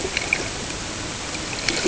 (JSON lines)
{"label": "ambient", "recorder": "HydroMoth"}